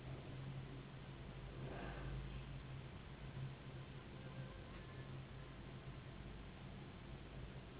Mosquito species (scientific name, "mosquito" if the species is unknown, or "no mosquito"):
Anopheles gambiae s.s.